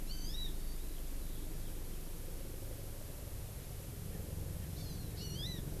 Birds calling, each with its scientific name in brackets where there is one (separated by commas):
Hawaii Amakihi (Chlorodrepanis virens)